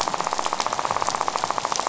{"label": "biophony, rattle", "recorder": "SoundTrap 500"}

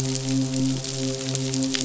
{"label": "biophony, midshipman", "recorder": "SoundTrap 500"}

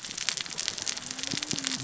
{"label": "biophony, cascading saw", "recorder": "SoundTrap 600 or HydroMoth"}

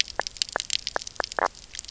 {"label": "biophony, knock croak", "recorder": "SoundTrap 300"}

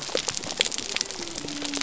{"label": "biophony", "recorder": "SoundTrap 300"}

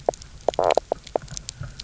{"label": "biophony, knock croak", "recorder": "SoundTrap 300"}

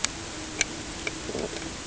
{"label": "ambient", "recorder": "HydroMoth"}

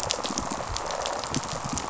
{"label": "biophony, rattle response", "recorder": "SoundTrap 500"}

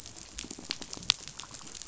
{"label": "biophony, pulse", "recorder": "SoundTrap 500"}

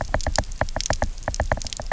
{"label": "biophony, knock", "recorder": "SoundTrap 300"}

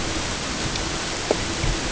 {"label": "ambient", "recorder": "HydroMoth"}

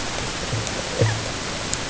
{"label": "ambient", "recorder": "HydroMoth"}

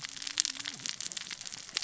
{"label": "biophony, cascading saw", "recorder": "SoundTrap 600 or HydroMoth"}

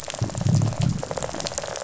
{"label": "biophony, rattle response", "recorder": "SoundTrap 500"}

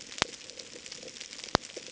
{"label": "ambient", "recorder": "HydroMoth"}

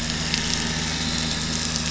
{"label": "anthrophony, boat engine", "recorder": "SoundTrap 500"}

